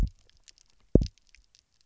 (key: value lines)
label: biophony, double pulse
recorder: SoundTrap 300